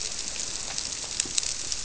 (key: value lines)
label: biophony
recorder: SoundTrap 300